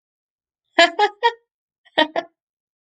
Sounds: Laughter